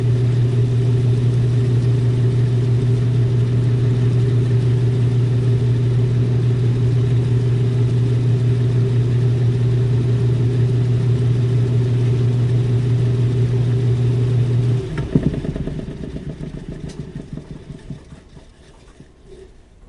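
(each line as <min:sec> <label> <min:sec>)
0:00.0 A washing machine runs nearby indoors, producing a constant, low mechanical hum with water splashing and subtle rattling. 0:15.0
0:15.0 A washing machine comes to a stop indoors, with clothes falling and banging against the drum, creating irregular thumping sounds. 0:19.9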